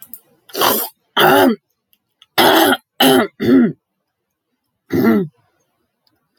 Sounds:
Throat clearing